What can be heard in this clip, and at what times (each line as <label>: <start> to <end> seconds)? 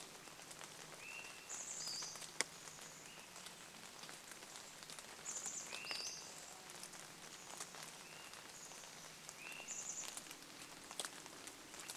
Swainson's Thrush call: 0 to 2 seconds
vehicle engine: 0 to 4 seconds
Pacific-slope Flycatcher call: 0 to 8 seconds
Chestnut-backed Chickadee call: 0 to 10 seconds
rain: 0 to 12 seconds
Swainson's Thrush song: 2 to 4 seconds
Swainson's Thrush call: 4 to 6 seconds
insect buzz: 6 to 8 seconds
vehicle engine: 6 to 8 seconds
Swainson's Thrush call: 8 to 10 seconds
vehicle engine: 10 to 12 seconds